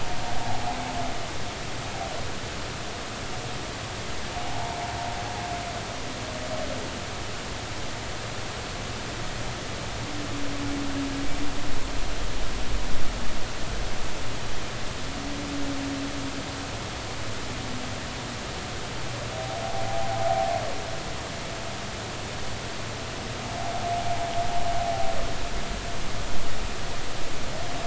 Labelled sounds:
0.4	0.8	humpback whale, 0.80 to 0.96 kHz
4.3	4.8	humpback whale, 0.80 to 0.96 kHz

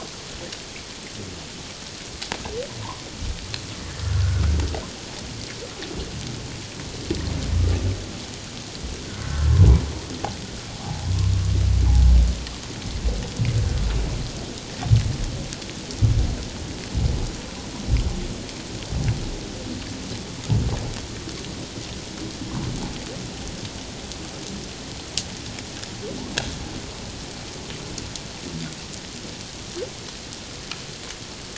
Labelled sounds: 4.0	4.4	humpback whale, 1.3 to 1.6 kHz
9.0	9.5	humpback whale, 1.3 to 1.6 kHz

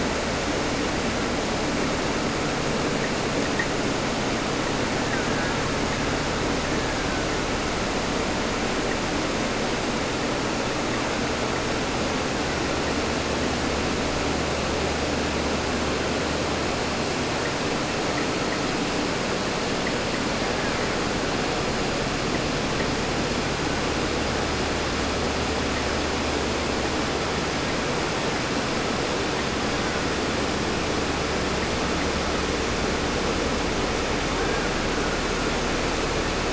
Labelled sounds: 4.9	5.8	killer whale, Bigg's (transient), 0.10 to 3.0 kHz
6.3	8.0	killer whale, Bigg's (transient), 0.49 to 2.2 kHz
20.5	20.9	killer whale, Bigg's (transient), 1.0 to 2.1 kHz
28.0	28.5	killer whale, Bigg's (transient), 1.2 to 2.5 kHz
29.5	30.2	killer whale, Bigg's (transient), 0.84 to 2.3 kHz
34.2	34.9	killer whale, Bigg's (transient), call T01, 0.40 to 2.2 kHz

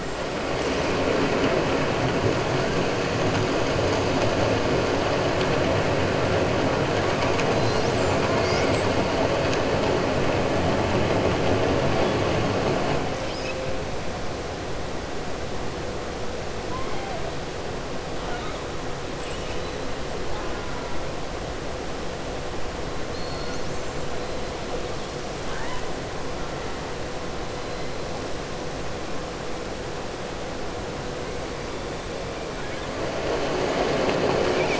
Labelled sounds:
18.2	18.6	killer whale, southern resident, 0.71 to 3.9 kHz
19.1	19.8	killer whale, southern resident, 2.3 to 4.0 kHz
23.0	24.0	killer whale, southern resident, 4.1 to 7.7 kHz
25.4	25.8	killer whale, southern resident, 0.86 to 3.9 kHz

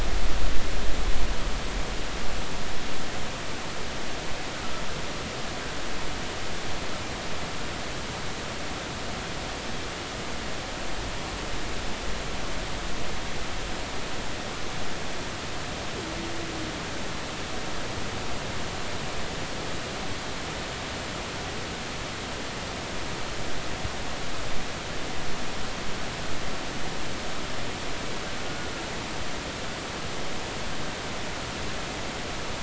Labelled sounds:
28.4	28.7	killer whale, Bigg's (transient), 1.4 to 1.5 kHz

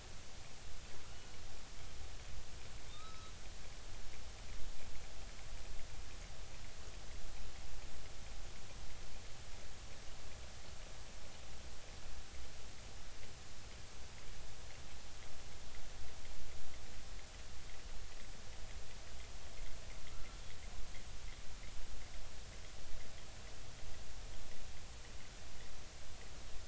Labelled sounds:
1.1	1.4	killer whale, offshore, 2.8 to 3.0 kHz
2.9	3.3	killer whale, offshore, 1.2 to 3.9 kHz

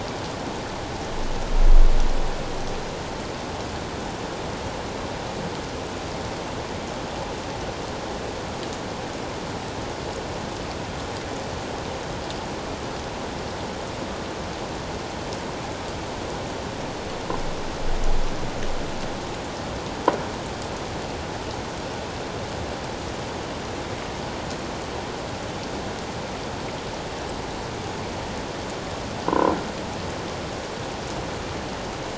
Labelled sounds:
29.3	29.5	croaking sound likely from a nearby submerged object, 0.91 to 1.1 kHz

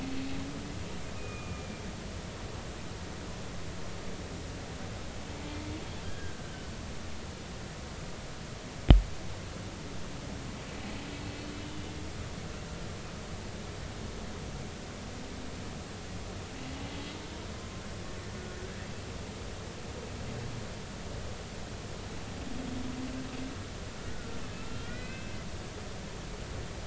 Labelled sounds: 1.2	1.8	humpback whale, 1.2 to 2.6 kHz
6.0	6.5	humpback whale, 1.5 to 1.7 kHz
18.3	18.6	humpback whale, 1.4 to 1.5 kHz
24.0	25.4	humpback whale, 1.2 to 2.9 kHz

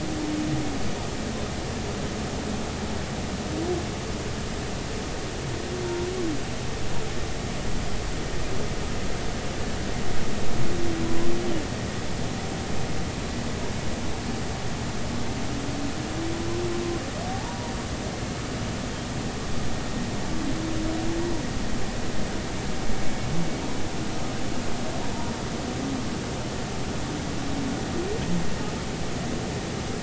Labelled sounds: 11.0	11.3	humpback whale, 0.96 to 1.1 kHz
17.3	17.7	humpback whale, 0.80 to 0.99 kHz

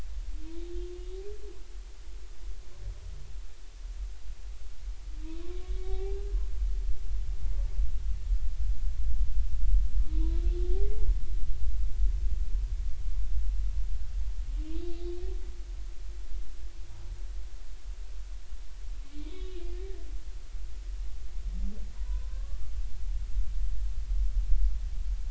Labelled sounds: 5.7	6.2	humpback whale, 0.80 to 3.8 kHz
10.1	10.4	humpback whale, 0.90 to 4.0 kHz
19.1	20.0	humpback whale, 1.8 to 3.8 kHz
21.9	22.6	humpback whale, 0.90 to 1.2 kHz

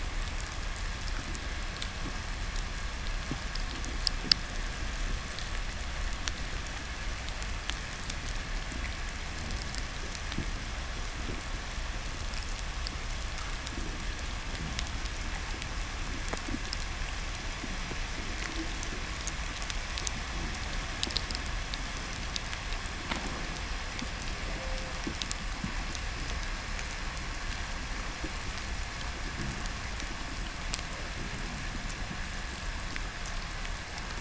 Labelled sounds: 13.5	14.9	fish, 0.02 to 0.51 kHz
18.8	22.1	undetermined biological sound, 2.4 to 8.0 kHz
33.6	34.2	killer whale, 0.10 to 3.3 kHz

